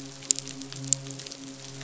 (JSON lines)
{"label": "biophony, midshipman", "recorder": "SoundTrap 500"}